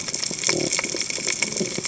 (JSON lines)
{"label": "biophony", "recorder": "HydroMoth"}